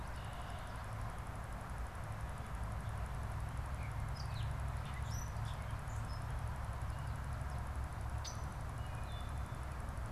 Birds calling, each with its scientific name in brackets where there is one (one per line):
Wood Thrush (Hylocichla mustelina)
Red-winged Blackbird (Agelaius phoeniceus)
Gray Catbird (Dumetella carolinensis)